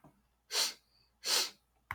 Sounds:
Sniff